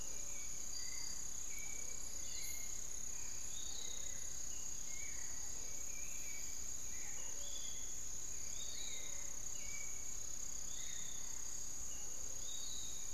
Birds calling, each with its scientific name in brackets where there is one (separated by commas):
unidentified bird, Piratic Flycatcher (Legatus leucophaius), Spix's Guan (Penelope jacquacu), Hauxwell's Thrush (Turdus hauxwelli)